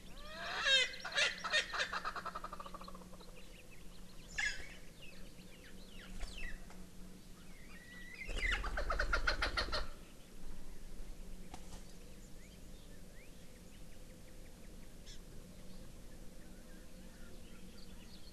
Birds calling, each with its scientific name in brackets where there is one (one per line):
Warbling White-eye (Zosterops japonicus)
Hawaii Amakihi (Chlorodrepanis virens)
Erckel's Francolin (Pternistis erckelii)